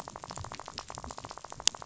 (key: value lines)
label: biophony, rattle
recorder: SoundTrap 500